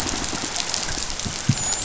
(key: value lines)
label: biophony, dolphin
recorder: SoundTrap 500